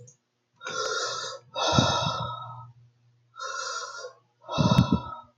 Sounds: Sigh